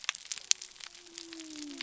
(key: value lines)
label: biophony
recorder: SoundTrap 300